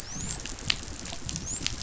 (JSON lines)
{"label": "biophony, dolphin", "recorder": "SoundTrap 500"}